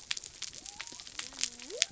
{"label": "biophony", "recorder": "SoundTrap 300"}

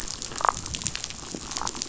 {"label": "biophony, damselfish", "recorder": "SoundTrap 500"}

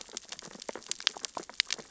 {"label": "biophony, sea urchins (Echinidae)", "recorder": "SoundTrap 600 or HydroMoth"}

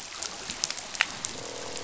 {"label": "biophony, croak", "recorder": "SoundTrap 500"}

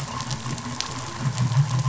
{"label": "anthrophony, boat engine", "recorder": "SoundTrap 500"}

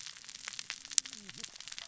{"label": "biophony, cascading saw", "recorder": "SoundTrap 600 or HydroMoth"}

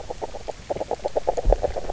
{"label": "biophony, grazing", "recorder": "SoundTrap 300"}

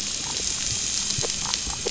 {"label": "biophony", "recorder": "SoundTrap 500"}
{"label": "anthrophony, boat engine", "recorder": "SoundTrap 500"}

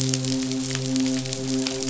{"label": "biophony, midshipman", "recorder": "SoundTrap 500"}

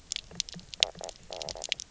{"label": "biophony, knock croak", "recorder": "SoundTrap 300"}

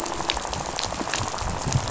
{"label": "biophony, rattle", "recorder": "SoundTrap 500"}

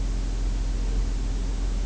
{"label": "biophony", "recorder": "SoundTrap 300"}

